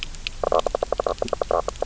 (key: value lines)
label: biophony, knock croak
recorder: SoundTrap 300